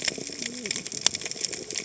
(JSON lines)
{"label": "biophony, cascading saw", "recorder": "HydroMoth"}